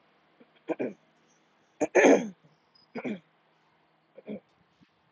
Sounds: Throat clearing